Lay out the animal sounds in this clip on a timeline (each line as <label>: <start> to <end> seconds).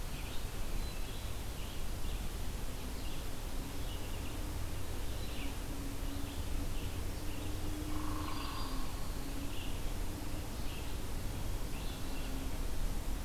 Red-eyed Vireo (Vireo olivaceus): 0.0 to 13.2 seconds
Black-throated Green Warbler (Setophaga virens): 7.8 to 9.1 seconds
Hairy Woodpecker (Dryobates villosus): 7.9 to 8.8 seconds